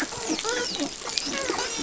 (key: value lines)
label: biophony, dolphin
recorder: SoundTrap 500